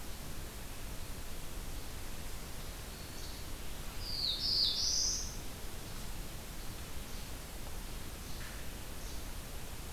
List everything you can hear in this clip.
Least Flycatcher, Black-throated Blue Warbler